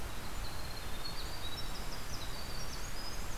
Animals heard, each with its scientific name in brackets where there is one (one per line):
Winter Wren (Troglodytes hiemalis)